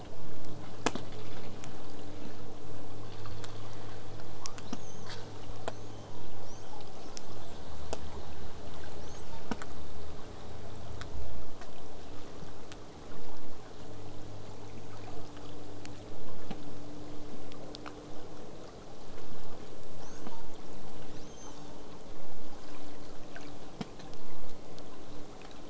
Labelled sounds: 4.4	5.4	killer whale, southern resident, L pod, call S02iii, 0.31 to 8.0 kHz
6.4	6.9	killer whale, southern resident, L pod, call S02iii, 0.60 to 8.0 kHz
6.8	7.9	killer whale, southern resident, call S10, 2.8 to 8.0 kHz
9.0	9.5	killer whale, southern resident, L pod, call S02iii, 0.66 to 8.0 kHz
20.0	20.5	killer whale, southern resident, L pod, call S02iii, 0.15 to 8.0 kHz
21.0	21.8	killer whale, southern resident, L pod, call S02iii, 2.5 to 8.0 kHz

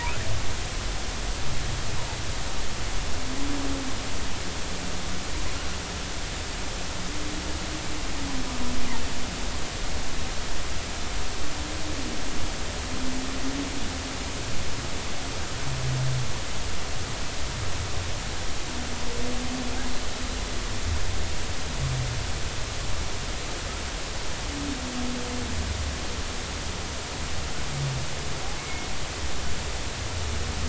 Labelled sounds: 28.6	28.9	humpback whale, 2.1 to 2.2 kHz

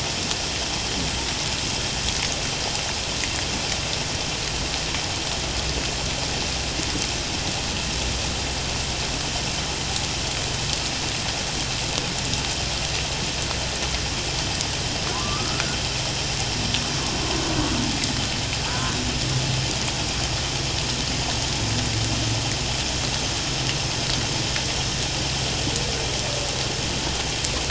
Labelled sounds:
15.1	15.6	humpback whale, 0.94 to 1.4 kHz

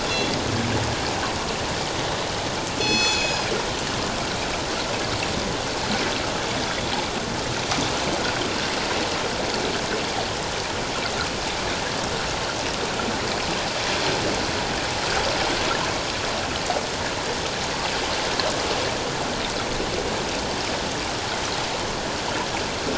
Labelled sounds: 0.1	0.3	killer whale, northern resident, G clan, 3.3 to 3.4 kHz
2.8	3.5	killer whale, northern resident, G clan, 2.4 to 7.8 kHz

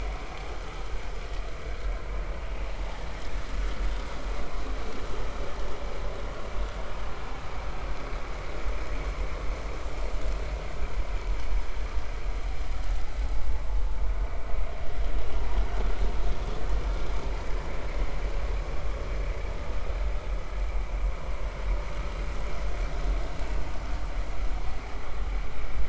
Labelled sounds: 1.6	1.9	vessel noise, 1.4 to 1.7 kHz

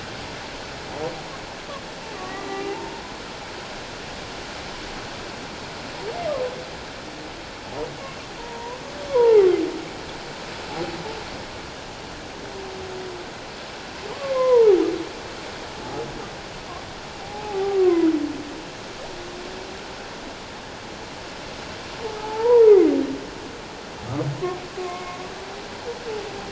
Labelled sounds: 2.1	3.0	humpback whale, 0.78 to 2.1 kHz
8.4	8.8	humpback whale, 0.88 to 1.1 kHz
9.1	9.5	humpback whale, 0.78 to 1.2 kHz
14.3	14.8	humpback whale, 0.78 to 2.2 kHz
17.2	18.1	humpback whale, 0.78 to 1.2 kHz
22.2	22.9	humpback whale, 0.81 to 2.2 kHz
24.9	25.2	humpback whale, 2.1 to 2.2 kHz

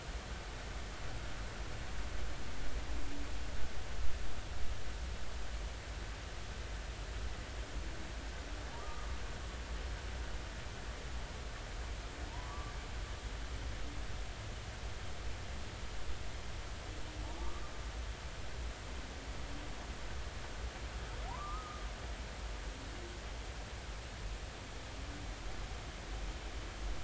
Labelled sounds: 8.8	9.1	humpback whale, 1.1 to 1.3 kHz
12.3	12.7	humpback whale, 0.86 to 1.2 kHz
17.4	17.6	humpback whale, 1.1 to 1.2 kHz
21.3	21.8	humpback whale, 0.80 to 1.3 kHz

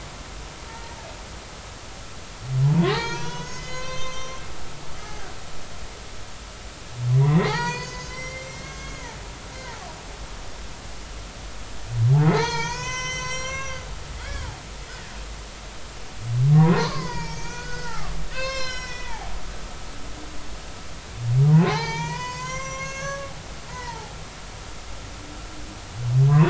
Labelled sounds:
0.7	1.0	humpback whale, 0.86 to 2.0 kHz
2.7	4.5	humpback whale, 0.80 to 6.8 kHz
5.0	5.3	humpback whale, 1.4 to 1.7 kHz
7.2	9.8	humpback whale, 0.80 to 7.9 kHz
12.3	13.8	humpback whale, 0.80 to 7.6 kHz
14.1	14.5	humpback whale, 1.4 to 7.9 kHz
16.5	19.3	humpback whale, 0.80 to 7.5 kHz
21.7	23.3	humpback whale, 0.80 to 7.7 kHz
23.7	24.2	humpback whale, 0.80 to 2.0 kHz

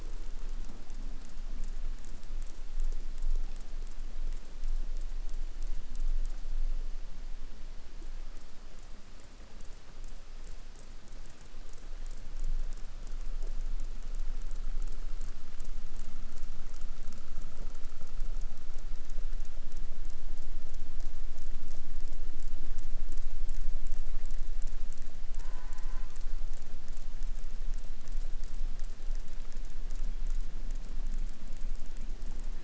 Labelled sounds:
25.3	26.3	killer whale, southern resident, J pod, call S04, 0 to 2.5 kHz

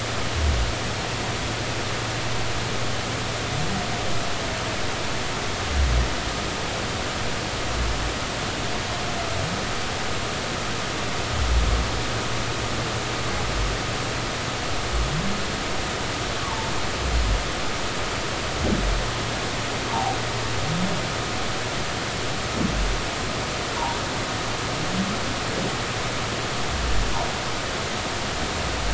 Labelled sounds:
16.4	16.7	humpback whale, 0.83 to 1.2 kHz
19.9	20.2	humpback whale, 0.80 to 0.99 kHz

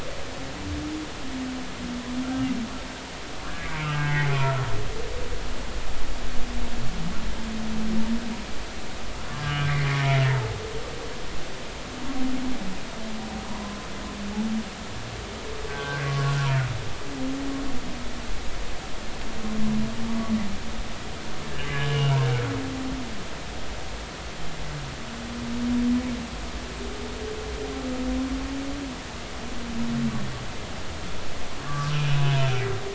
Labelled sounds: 3.5	4.6	humpback whale, 0.83 to 2.4 kHz
9.3	9.7	humpback whale, 1.5 to 1.7 kHz
16.7	17.1	humpback whale, 1.4 to 1.7 kHz
21.7	22.1	humpback whale, 1.6 to 3.2 kHz
31.7	32.2	humpback whale, 1.1 to 2.7 kHz

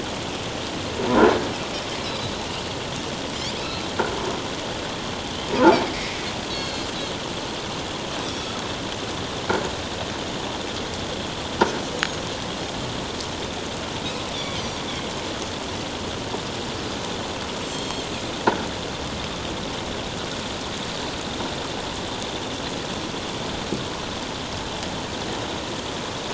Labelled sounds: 2.0	2.3	Pacific white-sided dolphin, 3.8 to 4.3 kHz
3.6	3.8	Pacific white-sided dolphin, 3.8 to 4.1 kHz
5.9	6.9	Pacific white-sided dolphin, 1.9 to 4.5 kHz
8.2	8.5	Pacific white-sided dolphin, 5.1 to 7.9 kHz
14.6	14.8	Pacific white-sided dolphin, 5.5 to 6.2 kHz
17.7	18.1	Pacific white-sided dolphin, 3.2 to 7.6 kHz

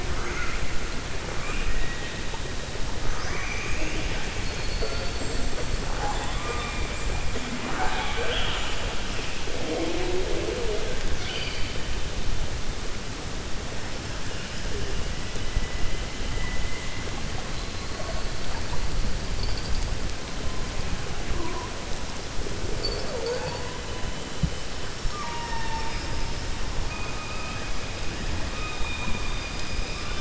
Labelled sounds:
1.3	2.2	killer whale, 1.1 to 3.8 kHz
25.0	26.0	killer whale, 0.89 to 2.9 kHz
28.5	29.4	killer whale, 2.4 to 3.8 kHz

